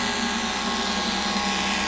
{"label": "anthrophony, boat engine", "recorder": "SoundTrap 500"}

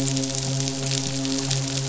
{"label": "biophony, midshipman", "recorder": "SoundTrap 500"}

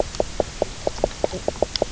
{"label": "biophony, knock croak", "recorder": "SoundTrap 300"}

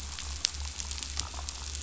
{"label": "anthrophony, boat engine", "recorder": "SoundTrap 500"}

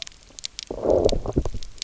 {"label": "biophony, low growl", "recorder": "SoundTrap 300"}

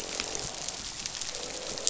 {"label": "biophony, croak", "recorder": "SoundTrap 500"}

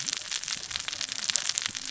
{"label": "biophony, cascading saw", "recorder": "SoundTrap 600 or HydroMoth"}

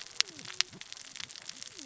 {"label": "biophony, cascading saw", "recorder": "SoundTrap 600 or HydroMoth"}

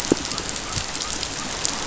{"label": "biophony", "recorder": "SoundTrap 500"}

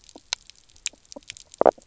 {"label": "biophony, knock croak", "recorder": "SoundTrap 300"}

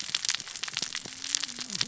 {"label": "biophony, cascading saw", "recorder": "SoundTrap 600 or HydroMoth"}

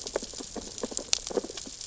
{"label": "biophony, sea urchins (Echinidae)", "recorder": "SoundTrap 600 or HydroMoth"}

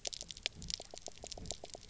{"label": "biophony, pulse", "recorder": "SoundTrap 300"}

